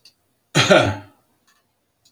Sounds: Cough